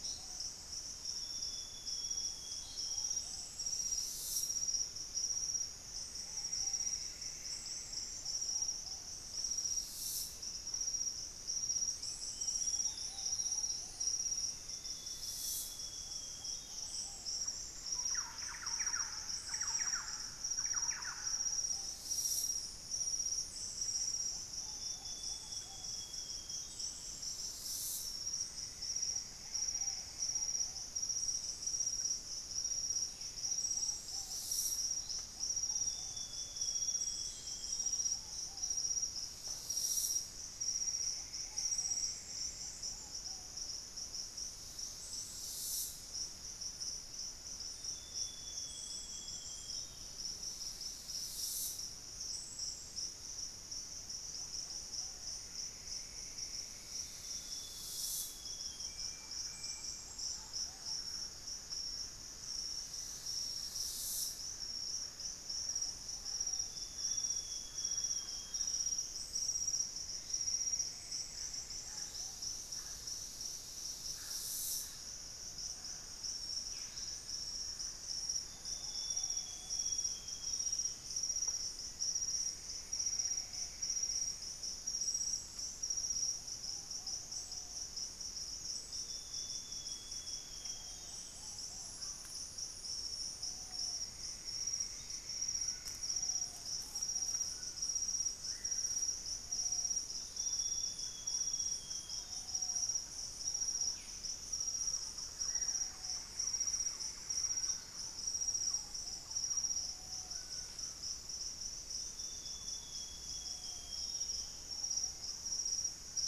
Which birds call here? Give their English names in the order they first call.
Ruddy Pigeon, Golden-crowned Spadebill, Amazonian Grosbeak, Plumbeous Antbird, Olivaceous Woodcreeper, Black-faced Antthrush, Thrush-like Wren, unidentified bird, Ringed Woodpecker, Cinnamon-rumped Foliage-gleaner, Piratic Flycatcher, Screaming Piha, White-bellied Tody-Tyrant, Purple-throated Fruitcrow